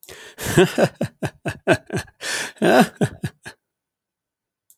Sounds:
Laughter